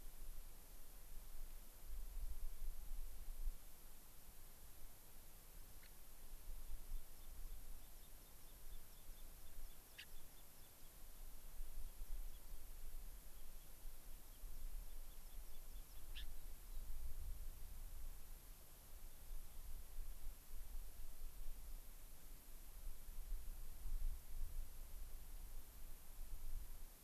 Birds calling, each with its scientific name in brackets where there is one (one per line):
Gray-crowned Rosy-Finch (Leucosticte tephrocotis)
American Pipit (Anthus rubescens)